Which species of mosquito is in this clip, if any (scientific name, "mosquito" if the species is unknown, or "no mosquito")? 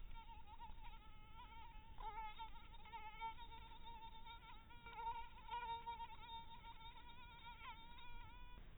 mosquito